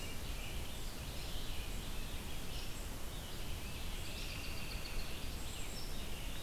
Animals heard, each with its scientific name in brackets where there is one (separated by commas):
Red-eyed Vireo (Vireo olivaceus), unidentified call, American Robin (Turdus migratorius), Rose-breasted Grosbeak (Pheucticus ludovicianus)